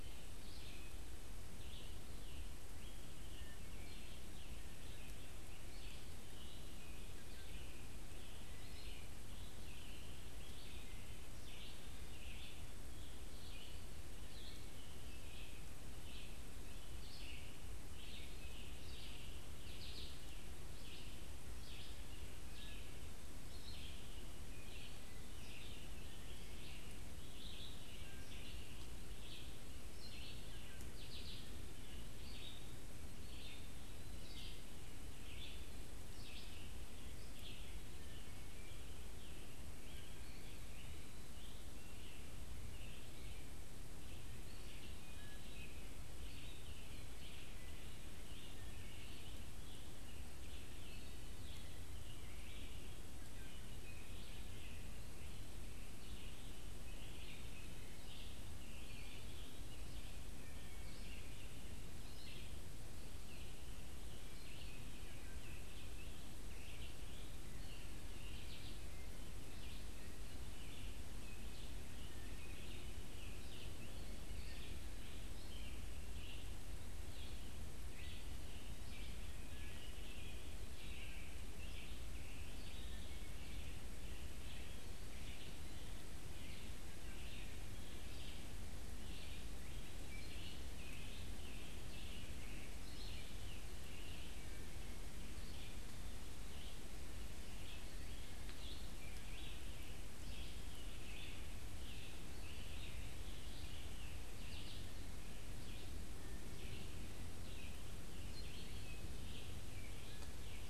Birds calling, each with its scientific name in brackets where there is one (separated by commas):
Scarlet Tanager (Piranga olivacea), Red-eyed Vireo (Vireo olivaceus), Eastern Wood-Pewee (Contopus virens), Wood Thrush (Hylocichla mustelina)